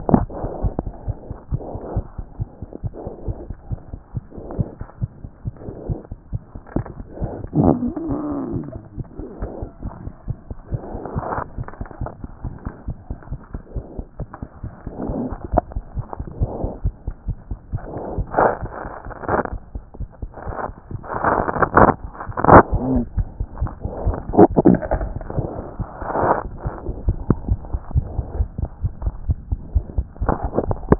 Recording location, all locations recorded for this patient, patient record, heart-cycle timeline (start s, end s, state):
aortic valve (AV)
aortic valve (AV)+mitral valve (MV)+mitral valve (MV)
#Age: Child
#Sex: Male
#Height: 79.0 cm
#Weight: 12.7 kg
#Pregnancy status: False
#Murmur: Absent
#Murmur locations: nan
#Most audible location: nan
#Systolic murmur timing: nan
#Systolic murmur shape: nan
#Systolic murmur grading: nan
#Systolic murmur pitch: nan
#Systolic murmur quality: nan
#Diastolic murmur timing: nan
#Diastolic murmur shape: nan
#Diastolic murmur grading: nan
#Diastolic murmur pitch: nan
#Diastolic murmur quality: nan
#Outcome: Normal
#Campaign: 2014 screening campaign
0.00	11.95	unannotated
11.95	12.02	diastole
12.02	12.10	S1
12.10	12.22	systole
12.22	12.30	S2
12.30	12.44	diastole
12.44	12.54	S1
12.54	12.66	systole
12.66	12.74	S2
12.74	12.88	diastole
12.88	12.96	S1
12.96	13.10	systole
13.10	13.18	S2
13.18	13.32	diastole
13.32	13.40	S1
13.40	13.54	systole
13.54	13.62	S2
13.62	13.76	diastole
13.76	13.84	S1
13.84	13.98	systole
13.98	14.06	S2
14.06	14.20	diastole
14.20	14.28	S1
14.28	14.42	systole
14.42	14.50	S2
14.50	14.59	diastole
14.59	30.99	unannotated